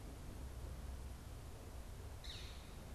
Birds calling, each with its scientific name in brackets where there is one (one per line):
Northern Flicker (Colaptes auratus)